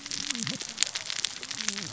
{"label": "biophony, cascading saw", "recorder": "SoundTrap 600 or HydroMoth"}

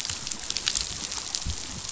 {"label": "biophony, chatter", "recorder": "SoundTrap 500"}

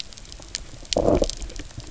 {"label": "biophony, low growl", "recorder": "SoundTrap 300"}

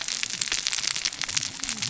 {"label": "biophony, cascading saw", "recorder": "SoundTrap 600 or HydroMoth"}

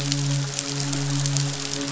{"label": "biophony, midshipman", "recorder": "SoundTrap 500"}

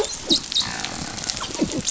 {"label": "biophony, dolphin", "recorder": "SoundTrap 500"}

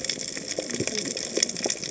{"label": "biophony, cascading saw", "recorder": "HydroMoth"}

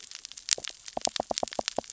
{"label": "biophony, knock", "recorder": "SoundTrap 600 or HydroMoth"}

